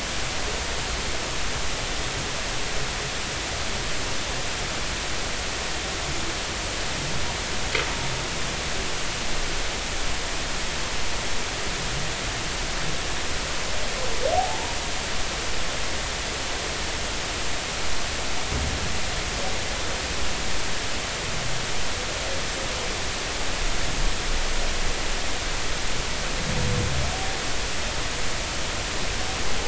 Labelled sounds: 14.4	14.7	humpback whale, 0.80 to 0.99 kHz

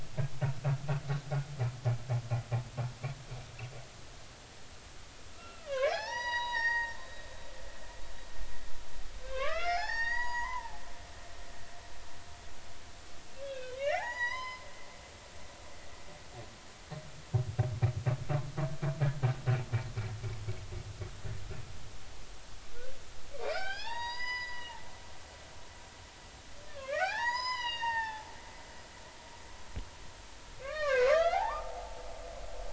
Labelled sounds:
5.3	7.0	humpback whale, 0.80 to 5.9 kHz
9.2	11.4	humpback whale, 0.80 to 6.8 kHz
13.4	14.7	humpback whale, 0.80 to 7.0 kHz
23.4	24.8	humpback whale, 0.80 to 5.6 kHz
26.7	28.3	humpback whale, 0.80 to 7.2 kHz
30.6	32.0	humpback whale, 0.80 to 3.6 kHz

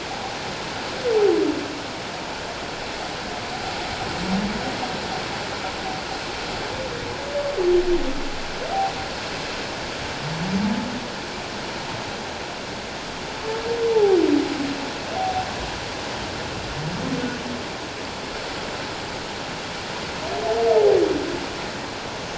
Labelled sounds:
13.9	14.2	humpback whale, 0.78 to 0.94 kHz
15.2	15.5	humpback whale, 0.78 to 0.81 kHz

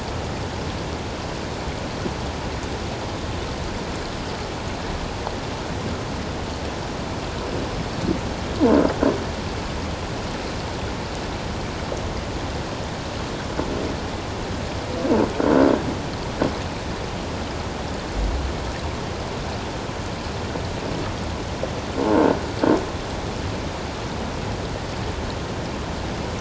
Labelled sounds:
22.0	22.4	croaking sound likely from a nearby submerged object, 0.84 to 1.6 kHz

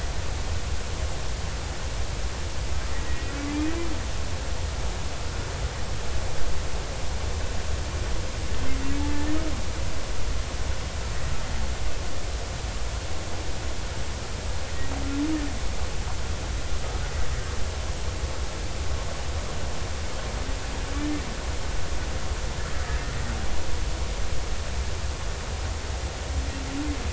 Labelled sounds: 2.9	3.3	humpback whale, 1.9 to 2.0 kHz
9.0	9.4	humpback whale, 1.7 to 1.9 kHz
22.9	23.1	humpback whale, 1.8 to 1.9 kHz

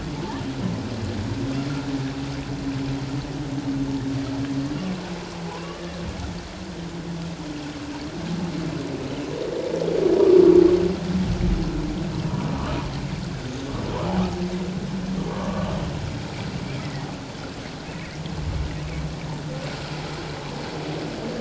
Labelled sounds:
5.5	5.8	humpback whale, 0.78 to 1.2 kHz
16.8	17.1	humpback whale, 1.8 to 2.1 kHz
18.8	19.1	humpback whale, 2.2 to 2.6 kHz

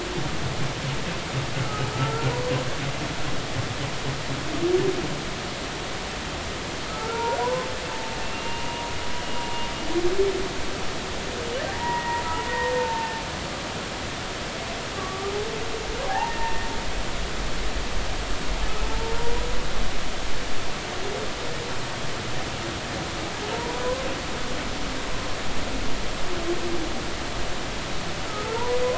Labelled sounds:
1.5	2.6	humpback whale, 0.93 to 1.5 kHz
6.9	7.7	humpback whale, 0.86 to 1.5 kHz
8.2	8.8	humpback whale, 2.6 to 2.9 kHz
9.2	9.4	humpback whale, 2.8 to 2.9 kHz
11.7	13.2	humpback whale, 0.83 to 2.0 kHz
14.9	15.3	humpback whale, 1.1 to 1.2 kHz
16.1	16.7	humpback whale, 0.80 to 1.9 kHz
18.9	19.4	humpback whale, 0.86 to 1.0 kHz
23.5	23.8	humpback whale, 0.86 to 1.0 kHz
28.3	28.8	humpback whale, 0.86 to 1.4 kHz

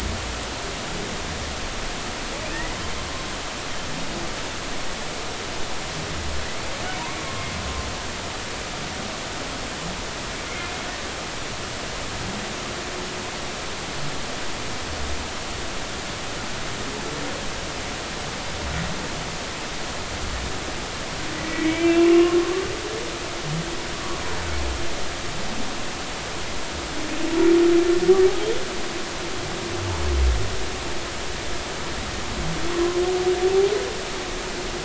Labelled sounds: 2.5	2.7	humpback whale, 1.7 to 2.0 kHz
7.0	7.4	humpback whale, 0.90 to 1.2 kHz
21.5	22.4	humpback whale, 1.0 to 2.9 kHz

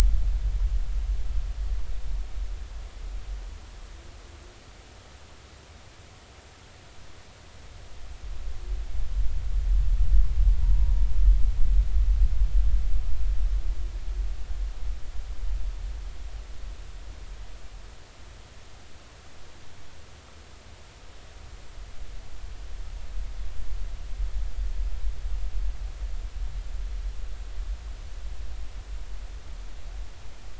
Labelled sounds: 10.6	11.1	humpback whale, 0.90 to 0.99 kHz

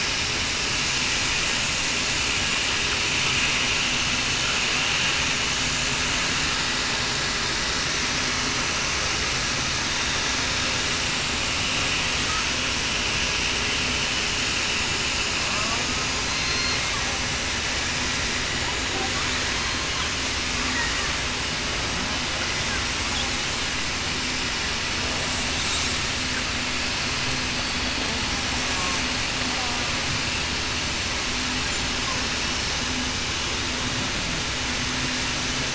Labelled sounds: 16.2	16.8	killer whale, southern resident, 4.1 to 4.3 kHz

